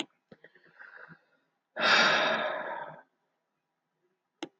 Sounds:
Sigh